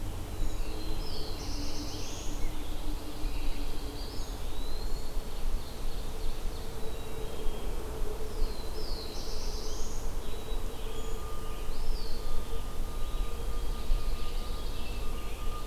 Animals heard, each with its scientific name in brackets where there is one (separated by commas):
Scarlet Tanager (Piranga olivacea), Black-capped Chickadee (Poecile atricapillus), Ovenbird (Seiurus aurocapilla), Eastern Wood-Pewee (Contopus virens), Black-throated Blue Warbler (Setophaga caerulescens), Brown Creeper (Certhia americana), Pine Warbler (Setophaga pinus)